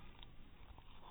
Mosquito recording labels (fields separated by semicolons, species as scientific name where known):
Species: mosquito; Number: one; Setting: cup